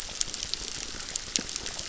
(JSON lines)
{"label": "biophony, crackle", "recorder": "SoundTrap 600"}